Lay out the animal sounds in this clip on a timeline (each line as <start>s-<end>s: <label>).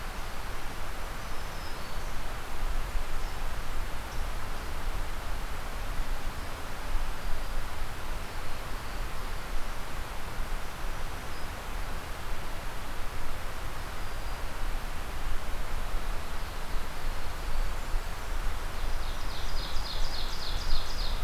1.2s-2.3s: Black-throated Green Warbler (Setophaga virens)
10.7s-11.8s: Black-throated Green Warbler (Setophaga virens)
13.9s-14.6s: Black-throated Green Warbler (Setophaga virens)
16.1s-17.7s: Ovenbird (Seiurus aurocapilla)
17.3s-18.8s: Blackburnian Warbler (Setophaga fusca)
18.6s-21.2s: Ovenbird (Seiurus aurocapilla)
18.8s-19.8s: Black-throated Green Warbler (Setophaga virens)